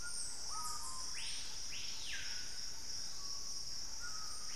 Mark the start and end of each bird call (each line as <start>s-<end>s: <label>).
0.0s-4.6s: Screaming Piha (Lipaugus vociferans)
0.0s-4.6s: White-throated Toucan (Ramphastos tucanus)
0.3s-3.2s: Thrush-like Wren (Campylorhynchus turdinus)